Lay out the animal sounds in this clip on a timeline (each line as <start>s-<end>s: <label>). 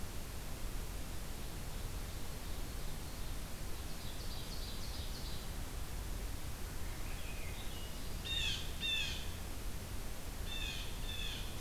1.5s-3.2s: Ovenbird (Seiurus aurocapilla)
3.5s-5.6s: Ovenbird (Seiurus aurocapilla)
6.6s-8.1s: Swainson's Thrush (Catharus ustulatus)
8.2s-9.3s: Blue Jay (Cyanocitta cristata)
10.4s-11.6s: Blue Jay (Cyanocitta cristata)